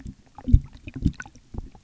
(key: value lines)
label: geophony, waves
recorder: SoundTrap 300